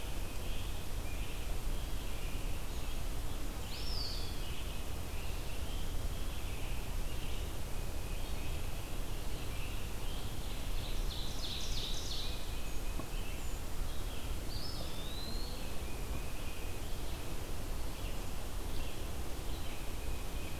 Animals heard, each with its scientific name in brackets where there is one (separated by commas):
Ovenbird (Seiurus aurocapilla), Eastern Wood-Pewee (Contopus virens), Tufted Titmouse (Baeolophus bicolor), Red-eyed Vireo (Vireo olivaceus)